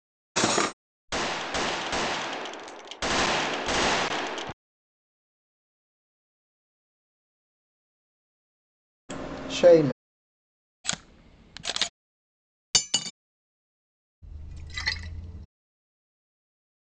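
At the start, there is the sound of cutlery. Then, about 1 second in, gunfire is heard. Later, about 10 seconds in, a voice says "Sheila." Next, about 11 seconds in, a camera is audible. Following that, about 13 seconds in, the sound of cutlery is heard. Finally, about 14 seconds in, there is splashing.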